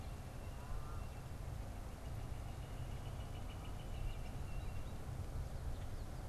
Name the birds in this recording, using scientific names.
Colaptes auratus